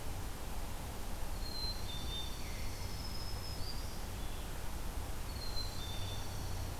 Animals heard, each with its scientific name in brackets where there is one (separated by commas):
Black-capped Chickadee (Poecile atricapillus), Dark-eyed Junco (Junco hyemalis), Black-throated Green Warbler (Setophaga virens), Red-eyed Vireo (Vireo olivaceus)